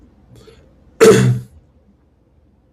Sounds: Throat clearing